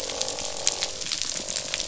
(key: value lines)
label: biophony, croak
recorder: SoundTrap 500